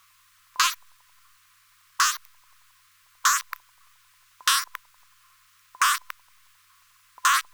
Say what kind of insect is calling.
orthopteran